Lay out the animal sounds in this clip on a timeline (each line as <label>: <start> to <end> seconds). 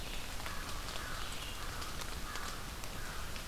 Red-eyed Vireo (Vireo olivaceus): 0.0 to 3.5 seconds
American Crow (Corvus brachyrhynchos): 0.4 to 3.3 seconds